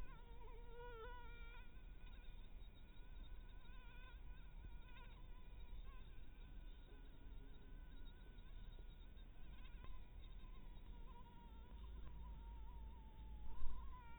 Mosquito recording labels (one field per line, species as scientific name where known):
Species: Anopheles harrisoni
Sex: female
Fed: blood-fed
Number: one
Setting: cup